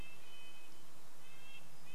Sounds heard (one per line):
Red-breasted Nuthatch song